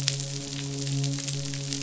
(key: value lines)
label: biophony, midshipman
recorder: SoundTrap 500